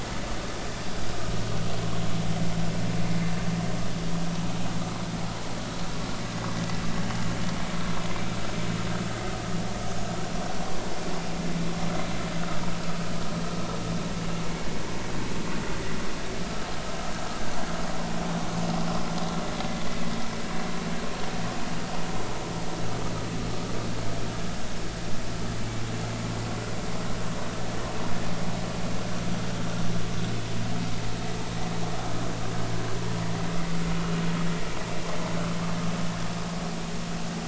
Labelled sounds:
16.4	16.7	vessel noise, 1.2 to 1.4 kHz

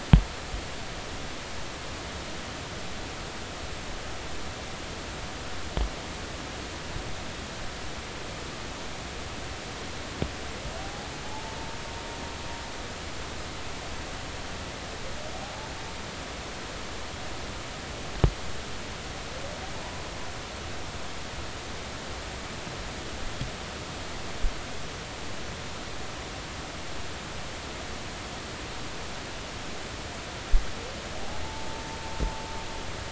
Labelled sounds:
10.8	11.6	humpback whale, 0.80 to 0.93 kHz
31.4	31.7	humpback whale, 0.83 to 0.93 kHz

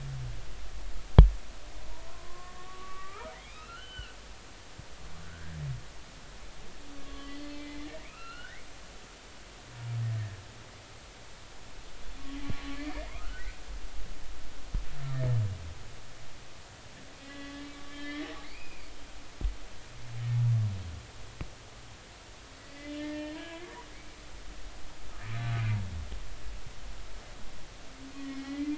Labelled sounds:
2.1	4.2	humpback whale, 0.96 to 3.1 kHz
5.2	5.5	humpback whale, 1.4 to 1.8 kHz
7.0	8.6	humpback whale, 1.1 to 4.4 kHz
12.4	12.8	humpback whale, 1.1 to 1.2 kHz
13.2	13.6	humpback whale, 1.2 to 1.6 kHz
17.2	18.9	humpback whale, 1.1 to 3.8 kHz
22.6	23.7	humpback whale, 0.86 to 3.1 kHz
28.2	28.7	humpback whale, 1.9 to 3.1 kHz

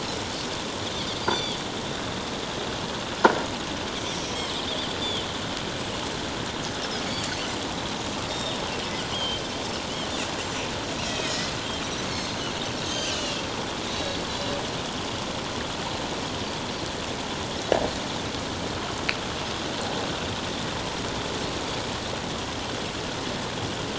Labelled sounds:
1.2	1.6	Pacific white-sided dolphin, 3.1 to 4.8 kHz
4.1	4.6	Pacific white-sided dolphin, 5.4 to 7.7 kHz
7.0	7.3	Pacific white-sided dolphin, 4.4 to 4.7 kHz
8.3	8.6	Pacific white-sided dolphin, 3.4 to 3.8 kHz
9.1	9.4	Pacific white-sided dolphin, 2.8 to 3.3 kHz
11.0	11.5	Pacific white-sided dolphin, 1.8 to 6.8 kHz
12.1	13.4	Pacific white-sided dolphin, 2.6 to 7.2 kHz
13.9	14.6	Pacific white-sided dolphin, 3.8 to 4.1 kHz

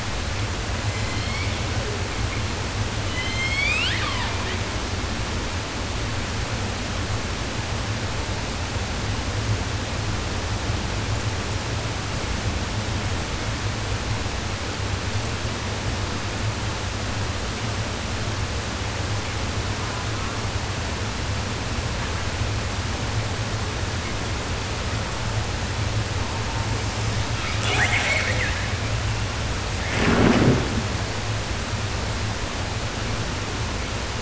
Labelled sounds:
0.6	2.1	killer whale, southern resident, J pod, call S01, 0.29 to 8.0 kHz
3.0	4.7	killer whale, southern resident, J pod, call S01, 0.10 to 8.0 kHz
19.6	20.6	killer whale, southern resident, 0.62 to 1.9 kHz
26.1	26.9	killer whale, 0.40 to 1.5 kHz
27.4	29.0	killer whale, southern resident, call S10, 0.10 to 8.0 kHz

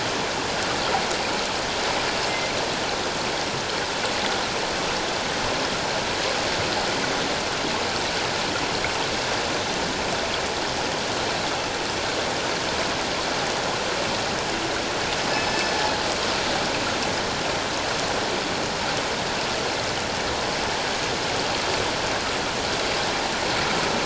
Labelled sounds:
15.3	15.6	killer whale, northern resident, G clan, 5.1 to 5.2 kHz

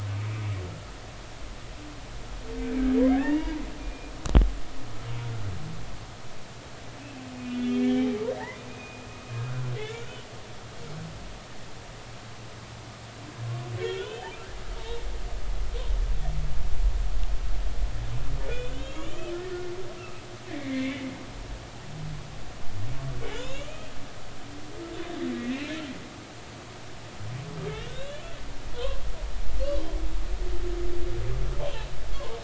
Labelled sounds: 3.0	4.1	humpback whale, 0.83 to 2.9 kHz
7.3	9.1	humpback whale, 1.7 to 3.3 kHz
9.4	10.3	humpback whale, 1.3 to 3.1 kHz
13.8	14.3	humpback whale, 1.3 to 3.7 kHz
15.0	15.4	humpback whale, 2.9 to 3.2 kHz
18.7	19.6	humpback whale, 1.7 to 3.4 kHz
20.5	21.0	humpback whale, 1.7 to 2.4 kHz
23.2	23.9	humpback whale, 2.2 to 3.9 kHz
25.5	25.8	humpback whale, 2.0 to 2.8 kHz
27.8	29.0	humpback whale, 0.93 to 4.0 kHz

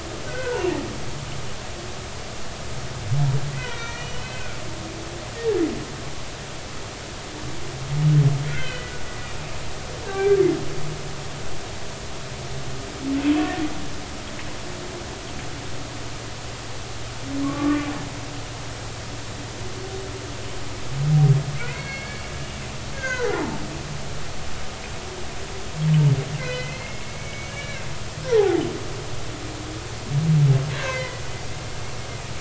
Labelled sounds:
0.3	0.6	humpback whale, 0.86 to 1.6 kHz
3.5	5.2	humpback whale, 1.3 to 6.0 kHz
8.5	8.9	humpback whale, 1.4 to 3.2 kHz
10.0	10.4	humpback whale, 1.5 to 1.7 kHz
17.4	17.8	humpback whale, 1.0 to 1.2 kHz
21.7	23.6	humpback whale, 0.80 to 4.4 kHz
26.4	28.6	humpback whale, 0.80 to 4.3 kHz
30.7	31.2	humpback whale, 1.5 to 2.8 kHz

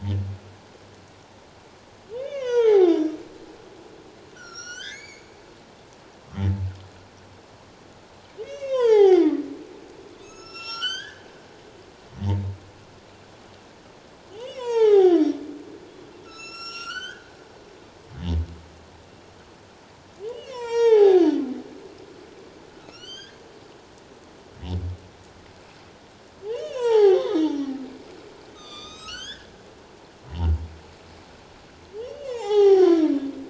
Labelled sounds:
2.2	3.2	humpback whale, 0.78 to 5.8 kHz
4.3	5.3	humpback whale, 1.3 to 7.8 kHz
8.4	9.3	humpback whale, 0.78 to 6.7 kHz
10.2	11.3	humpback whale, 1.2 to 8.0 kHz
14.3	15.3	humpback whale, 0.78 to 6.8 kHz
16.2	17.3	humpback whale, 1.2 to 8.0 kHz
20.3	21.3	humpback whale, 0.78 to 7.9 kHz
22.8	23.4	humpback whale, 1.2 to 6.7 kHz
26.5	27.7	humpback whale, 0.78 to 6.8 kHz
28.6	29.5	humpback whale, 1.1 to 7.8 kHz
30.2	30.5	humpback whale, 0.81 to 1.0 kHz
32.0	33.1	humpback whale, 0.78 to 6.1 kHz

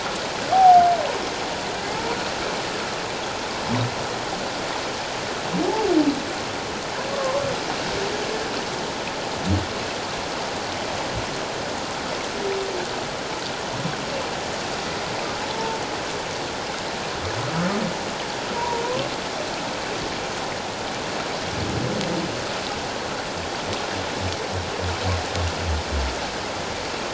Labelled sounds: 0.5	0.8	humpback whale, 0.78 to 0.88 kHz
7.1	7.4	humpback whale, 1.0 to 1.2 kHz
18.5	18.8	humpback whale, 0.88 to 1.1 kHz

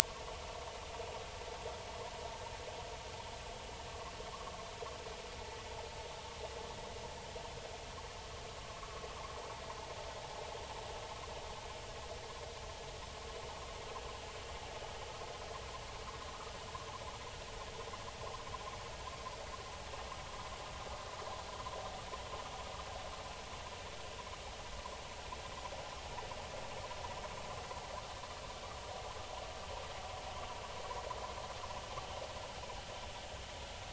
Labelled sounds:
1.0	1.4	vessel noise, 0.83 to 1.2 kHz

